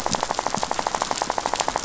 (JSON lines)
{"label": "biophony, rattle", "recorder": "SoundTrap 500"}